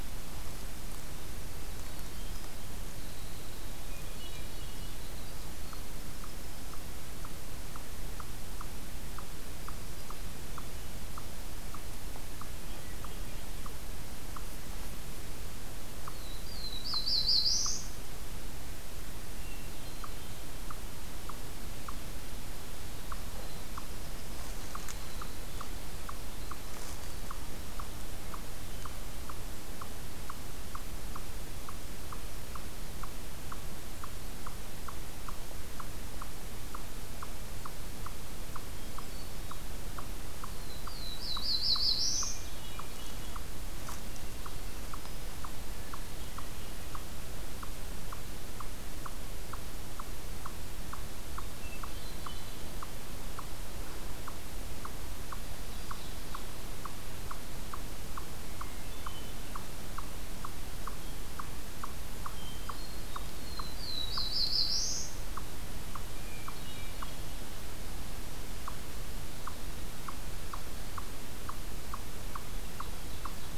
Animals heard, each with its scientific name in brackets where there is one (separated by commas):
Winter Wren (Troglodytes hiemalis), Eastern Chipmunk (Tamias striatus), Hermit Thrush (Catharus guttatus), Black-throated Blue Warbler (Setophaga caerulescens), Ovenbird (Seiurus aurocapilla)